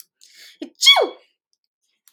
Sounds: Sneeze